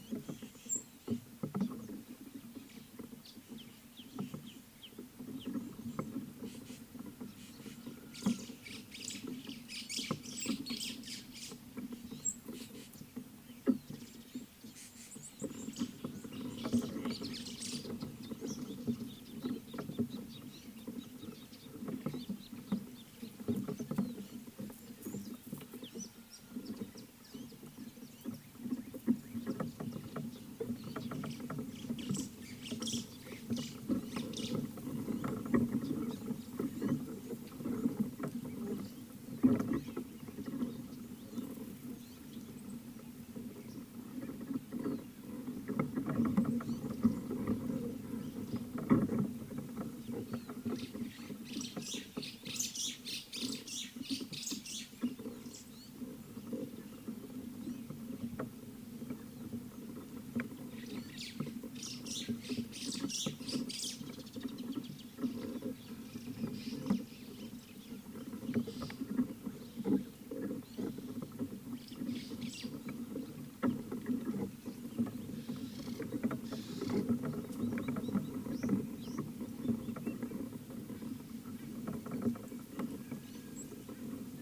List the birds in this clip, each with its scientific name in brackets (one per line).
White-browed Sparrow-Weaver (Plocepasser mahali)
Ring-necked Dove (Streptopelia capicola)
Scarlet-chested Sunbird (Chalcomitra senegalensis)